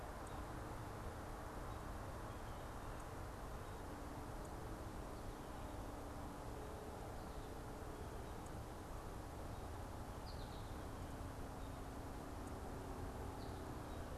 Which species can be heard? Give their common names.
American Goldfinch